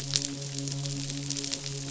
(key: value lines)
label: biophony, midshipman
recorder: SoundTrap 500